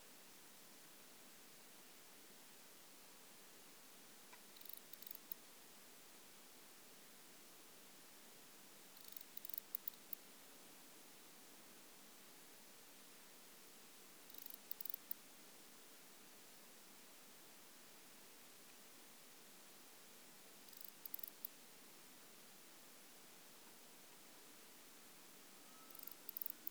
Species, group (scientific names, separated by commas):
Barbitistes obtusus, Orthoptera